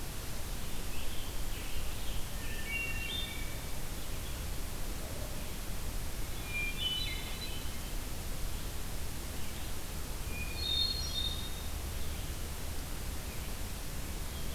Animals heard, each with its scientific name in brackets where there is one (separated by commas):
Scarlet Tanager (Piranga olivacea), Hermit Thrush (Catharus guttatus)